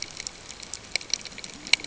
{"label": "ambient", "recorder": "HydroMoth"}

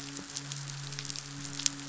{"label": "biophony, midshipman", "recorder": "SoundTrap 500"}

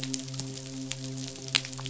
{"label": "biophony, midshipman", "recorder": "SoundTrap 500"}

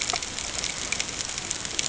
{"label": "ambient", "recorder": "HydroMoth"}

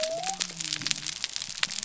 {"label": "biophony", "recorder": "SoundTrap 300"}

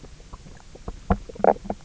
{"label": "biophony, knock croak", "recorder": "SoundTrap 300"}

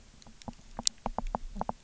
{"label": "biophony, knock croak", "recorder": "SoundTrap 300"}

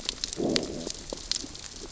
{"label": "biophony, growl", "recorder": "SoundTrap 600 or HydroMoth"}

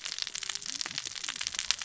{"label": "biophony, cascading saw", "recorder": "SoundTrap 600 or HydroMoth"}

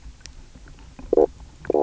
{"label": "biophony, knock croak", "recorder": "SoundTrap 300"}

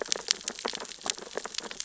{"label": "biophony, sea urchins (Echinidae)", "recorder": "SoundTrap 600 or HydroMoth"}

